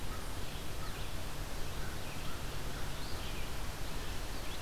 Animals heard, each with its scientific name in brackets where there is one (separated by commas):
Red-eyed Vireo (Vireo olivaceus), American Crow (Corvus brachyrhynchos)